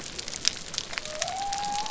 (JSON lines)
{"label": "biophony", "recorder": "SoundTrap 300"}